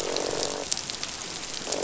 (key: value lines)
label: biophony, croak
recorder: SoundTrap 500